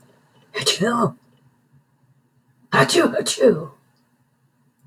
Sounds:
Sneeze